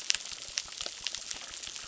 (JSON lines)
{"label": "biophony, crackle", "recorder": "SoundTrap 600"}